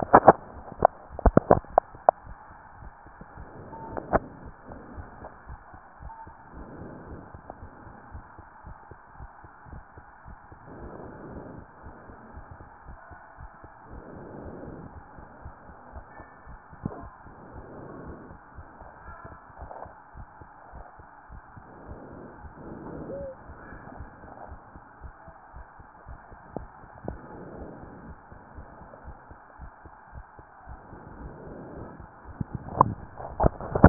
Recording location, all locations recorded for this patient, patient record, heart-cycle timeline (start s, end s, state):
tricuspid valve (TV)
aortic valve (AV)+pulmonary valve (PV)+tricuspid valve (TV)+mitral valve (MV)
#Age: Child
#Sex: Male
#Height: 133.0 cm
#Weight: 42.6 kg
#Pregnancy status: False
#Murmur: Unknown
#Murmur locations: nan
#Most audible location: nan
#Systolic murmur timing: nan
#Systolic murmur shape: nan
#Systolic murmur grading: nan
#Systolic murmur pitch: nan
#Systolic murmur quality: nan
#Diastolic murmur timing: nan
#Diastolic murmur shape: nan
#Diastolic murmur grading: nan
#Diastolic murmur pitch: nan
#Diastolic murmur quality: nan
#Outcome: Normal
#Campaign: 2015 screening campaign
0.00	20.72	unannotated
20.72	20.84	S1
20.84	20.97	systole
20.97	21.10	S2
21.10	21.29	diastole
21.29	21.41	S1
21.41	21.54	systole
21.54	21.62	S2
21.62	21.88	diastole
21.88	22.00	S1
22.00	22.12	systole
22.12	22.22	S2
22.22	22.41	diastole
22.41	22.51	S1
22.51	23.98	unannotated
23.98	24.10	S1
24.10	24.24	systole
24.24	24.34	S2
24.34	24.49	diastole
24.49	24.59	S1
24.59	24.73	systole
24.73	24.81	S2
24.81	25.00	diastole
25.00	25.14	S1
25.14	25.25	systole
25.25	25.38	S2
25.38	25.55	diastole
25.55	25.64	S1
25.64	25.76	systole
25.76	25.85	S2
25.85	26.07	diastole
26.07	26.20	S1
26.20	26.29	systole
26.29	26.40	S2
26.40	26.58	diastole
26.58	26.68	S1
26.68	33.89	unannotated